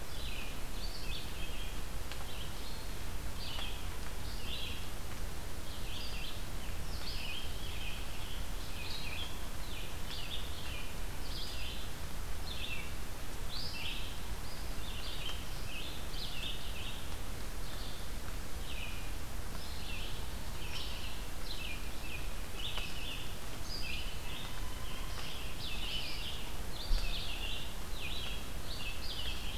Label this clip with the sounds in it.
Red-eyed Vireo